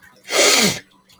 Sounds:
Sneeze